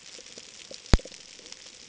{"label": "ambient", "recorder": "HydroMoth"}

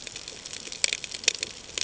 {"label": "ambient", "recorder": "HydroMoth"}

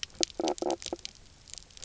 {"label": "biophony, knock croak", "recorder": "SoundTrap 300"}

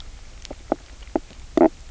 {"label": "biophony, knock croak", "recorder": "SoundTrap 300"}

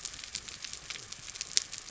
{"label": "biophony", "recorder": "SoundTrap 300"}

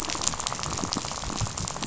{"label": "biophony, rattle", "recorder": "SoundTrap 500"}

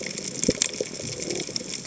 {"label": "biophony", "recorder": "HydroMoth"}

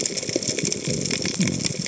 {"label": "biophony", "recorder": "HydroMoth"}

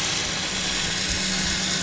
{"label": "anthrophony, boat engine", "recorder": "SoundTrap 500"}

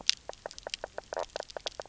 {"label": "biophony, knock croak", "recorder": "SoundTrap 300"}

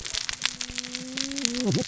{"label": "biophony, cascading saw", "recorder": "SoundTrap 600 or HydroMoth"}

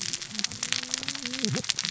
{"label": "biophony, cascading saw", "recorder": "SoundTrap 600 or HydroMoth"}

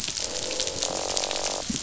{"label": "biophony, croak", "recorder": "SoundTrap 500"}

